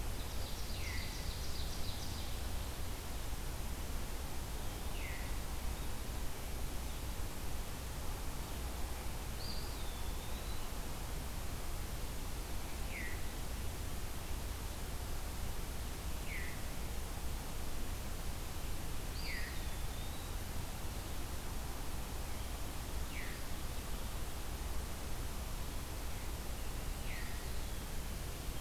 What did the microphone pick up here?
Ovenbird, Veery, Eastern Wood-Pewee